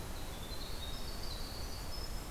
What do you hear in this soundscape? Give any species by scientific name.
Troglodytes hiemalis